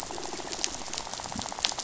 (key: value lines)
label: biophony, rattle
recorder: SoundTrap 500

label: biophony
recorder: SoundTrap 500